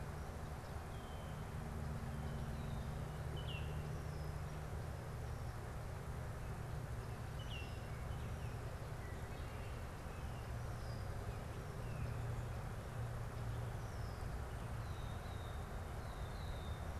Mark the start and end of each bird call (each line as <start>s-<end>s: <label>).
3.1s-3.8s: Baltimore Oriole (Icterus galbula)
7.2s-7.7s: Baltimore Oriole (Icterus galbula)
8.8s-17.0s: Red-winged Blackbird (Agelaius phoeniceus)